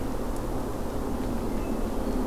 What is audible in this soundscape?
Red-eyed Vireo, Hermit Thrush